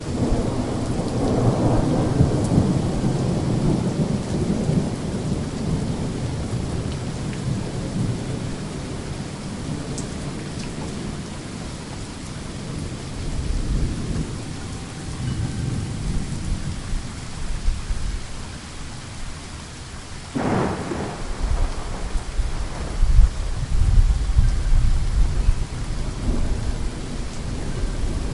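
Thunder rumbles. 0.0 - 9.7
Rain falling. 0.0 - 28.3
Thunder rumbling softly. 12.9 - 18.6
Thunder rumbles. 20.4 - 28.3

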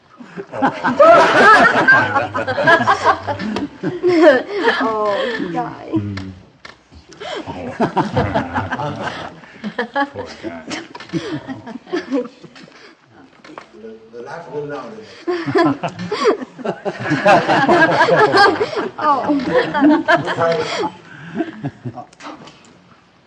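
A crowd laughs politely. 0.3 - 6.4
People laugh loudly and politely indoors. 0.3 - 6.4
A crowd laughs politely. 7.2 - 9.4
A man laughs loudly. 7.2 - 9.4
A woman laughs loudly. 9.6 - 12.3
A woman laughs politely. 15.0 - 16.5
People laugh loudly and politely indoors. 16.6 - 21.0
A man laughs quietly, fading away. 21.3 - 22.4

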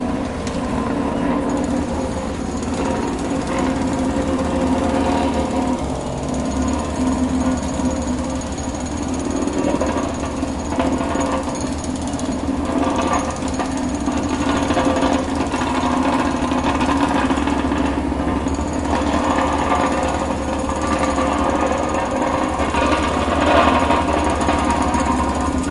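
A jackhammer is working. 0.0 - 25.7
Construction sounds. 0.0 - 25.7

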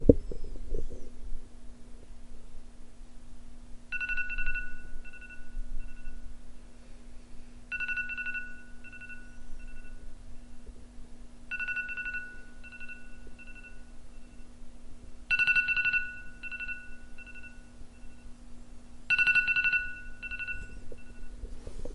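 Something is uncovering the microphone. 0.0 - 1.6
An iPhone alarm ringing fades away. 3.9 - 6.6
An iPhone alarm ringing fades away. 7.6 - 10.4
An iPhone alarm ringing fades away. 11.4 - 14.2
An iPhone alarm ringing fades away. 15.2 - 18.0
An iPhone alarm ringing fades away. 19.0 - 21.9
Something covers the microphone. 21.7 - 21.9

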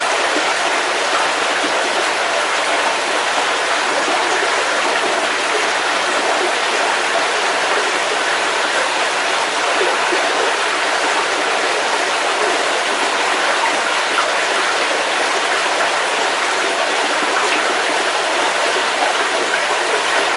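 Water flows resonantly beneath a small bridge in a tunnel, creating an echoing, mysterious sound. 0.0 - 20.4

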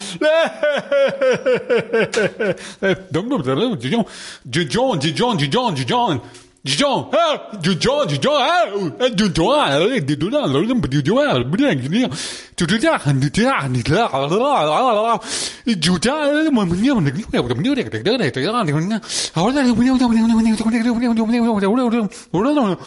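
A person making mouth noises. 0.0 - 22.9

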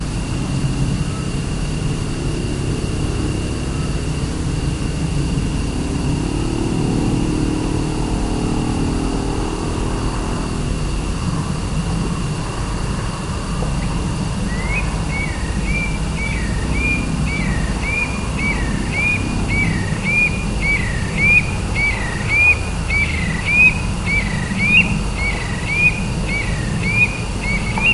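A scops owl hoots while a bird chirps, crickets trill, insects buzz, and a distant car hums, blending nature with modern sounds. 0.0 - 27.9

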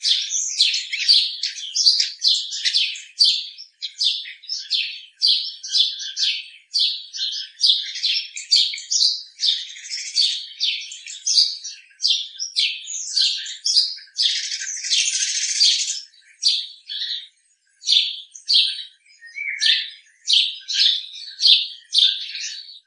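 Multiple birds chirping outdoors. 0.0 - 22.3
A frog is ribbiting outdoors. 1.3 - 2.2
A frog is ribbiting outdoors. 4.4 - 4.7
A frog is ribbiting outdoors. 5.5 - 6.2
A frog is ribbiting outdoors. 7.8 - 8.4
A frog is ribbiting outdoors. 9.6 - 10.4
A frog is ribbiting outdoors. 12.8 - 13.1
A frog ribbits increasingly louder outdoors. 14.2 - 16.1
A frog is ribbiting outdoors. 16.9 - 17.3
A frog is ribbiting outdoors. 22.2 - 22.9

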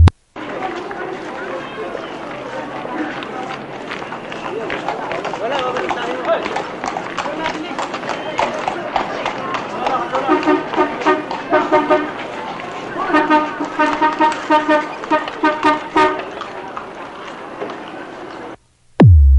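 A loud swooping sound begins. 0.0 - 0.1
Multiple people are talking, creating a distant mumbling sound. 0.4 - 18.6
A horse carriage is steadily approaching on cobblestone. 1.9 - 18.6
A vintage car horn honks repeatedly in a high pitch. 10.2 - 12.1
A vintage car horn honks repeatedly in a high pitch. 13.1 - 16.2
A loud bass note plays as a vintage recording ends. 19.0 - 19.4

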